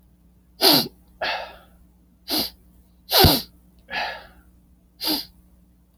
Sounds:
Sniff